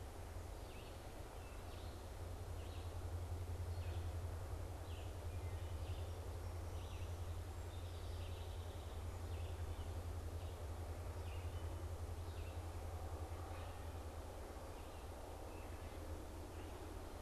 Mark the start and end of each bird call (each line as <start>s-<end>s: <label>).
0.0s-17.2s: Red-eyed Vireo (Vireo olivaceus)
5.3s-5.8s: Wood Thrush (Hylocichla mustelina)
7.7s-9.0s: unidentified bird
15.4s-16.1s: Wood Thrush (Hylocichla mustelina)